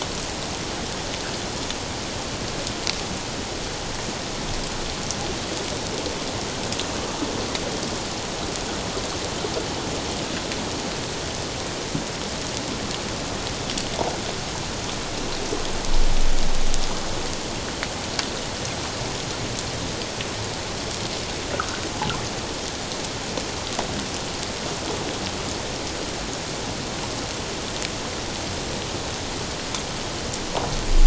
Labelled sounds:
21.5	21.8	water noise, 1.1 to 1.6 kHz

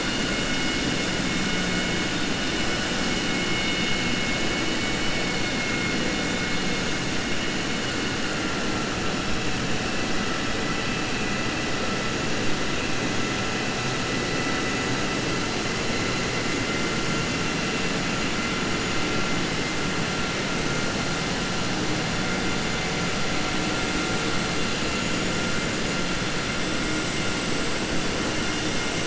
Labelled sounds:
4.5	5.2	vessel noise, 1.5 to 3.0 kHz

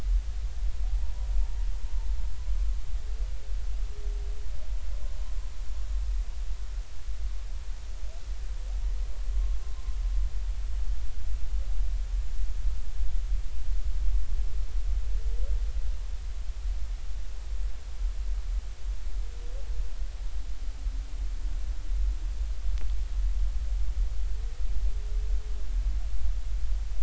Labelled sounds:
0.9	1.6	humpback whale, 0.80 to 1.0 kHz

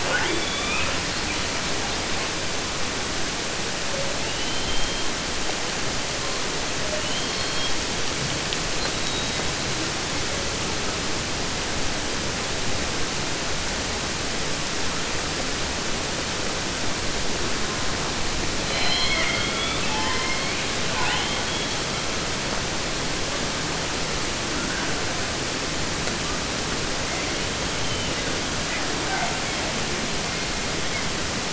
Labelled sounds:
0.0	1.4	killer whale, southern resident, 0.15 to 6.8 kHz
3.9	5.7	killer whale, southern resident, J pod, call S44, 0.28 to 5.7 kHz
6.8	8.0	killer whale, southern resident, J pod, call S44, 0.27 to 5.9 kHz
8.7	9.7	killer whale, 1.7 to 5.0 kHz
17.4	18.2	killer whale, southern resident, 0.58 to 2.0 kHz
18.6	20.7	killer whale, southern resident, J pod, call S44 and call S01, 0.26 to 6.6 kHz
20.8	21.9	killer whale, southern resident, J pod, call S44, 0.50 to 7.0 kHz
24.5	25.5	killer whale, 0.18 to 2.0 kHz
26.2	26.5	killer whale, 0.83 to 1.7 kHz
27.1	28.4	killer whale, 1.6 to 3.9 kHz
28.6	31.1	killer whale, 0.24 to 5.8 kHz

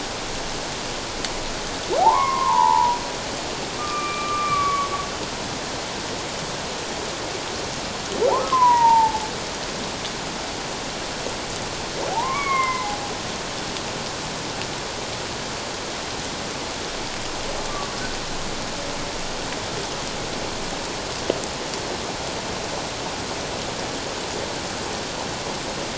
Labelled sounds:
2.0	3.0	humpback whale, 0.78 to 2.3 kHz
3.8	4.9	humpback whale, 1.1 to 2.5 kHz
8.3	9.2	humpback whale, 0.78 to 2.0 kHz
12.1	12.9	humpback whale, 0.78 to 2.3 kHz

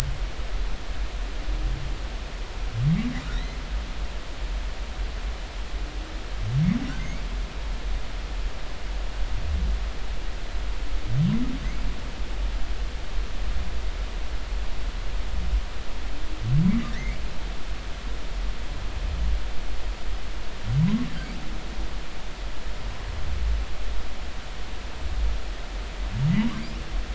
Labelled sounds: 3.3	3.6	humpback whale, 1.8 to 4.2 kHz
7.0	7.2	humpback whale, 2.0 to 2.4 kHz
16.9	17.2	humpback whale, 1.6 to 2.3 kHz

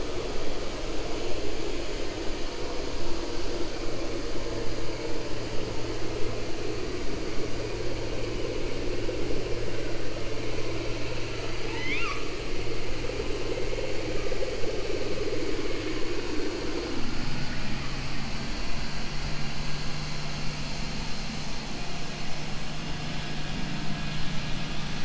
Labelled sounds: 10.9	12.3	killer whale, 0.69 to 6.0 kHz

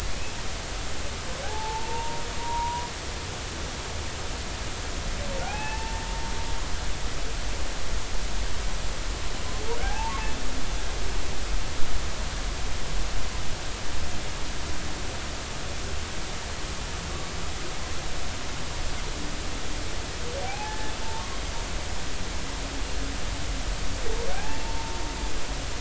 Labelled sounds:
1.0	2.9	humpback whale, 0.80 to 1.3 kHz
5.5	6.0	humpback whale, 0.80 to 2.7 kHz
9.8	10.2	humpback whale, 0.80 to 1.8 kHz
20.4	21.3	humpback whale, 0.80 to 1.9 kHz
24.3	25.0	humpback whale, 0.80 to 0.96 kHz

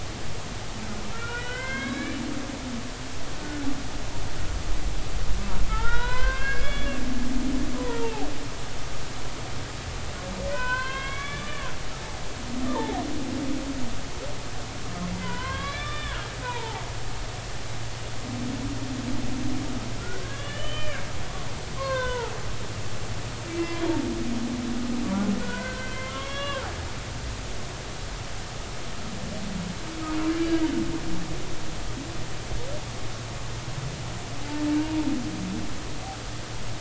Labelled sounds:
1.1	2.2	humpback whale, 1.0 to 4.0 kHz
5.7	7.0	humpback whale, 0.83 to 4.9 kHz
7.8	8.3	humpback whale, 0.80 to 1.1 kHz
10.5	11.7	humpback whale, 0.93 to 4.3 kHz
12.6	13.0	humpback whale, 0.80 to 3.6 kHz
15.2	16.8	humpback whale, 0.80 to 3.6 kHz
20.2	21.1	humpback whale, 1.5 to 3.6 kHz
21.8	22.3	humpback whale, 0.80 to 4.4 kHz
23.6	23.8	humpback whale, 2.0 to 2.1 kHz
25.4	26.6	humpback whale, 0.96 to 4.2 kHz
34.8	35.1	humpback whale, 0.86 to 0.99 kHz

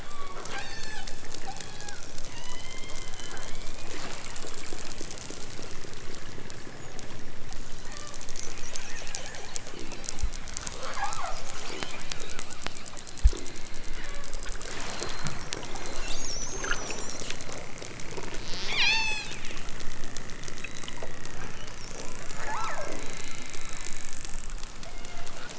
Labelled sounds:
0.0	1.1	killer whale, southern Alaska resident, 0.55 to 8.0 kHz
1.4	3.8	killer whale, southern Alaska resident, 0.46 to 8.0 kHz
7.8	8.2	killer whale, southern Alaska resident, 0.69 to 4.9 kHz
10.7	12.1	killer whale, southern Alaska resident, 0.28 to 3.8 kHz
13.7	14.4	killer whale, southern Alaska resident, 1.1 to 4.5 kHz
18.7	19.3	killer whale, southern Alaska resident, 0.69 to 8.0 kHz
23.0	24.1	killer whale, southern Alaska resident, 1.6 to 4.5 kHz
24.8	25.4	killer whale, southern Alaska resident, 0.37 to 3.8 kHz

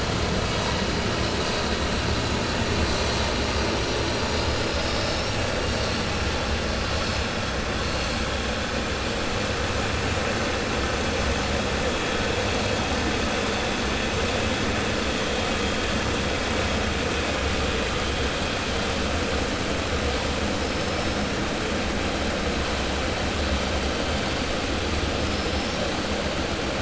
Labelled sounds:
25.2	25.8	killer whale, 4.3 to 6.4 kHz

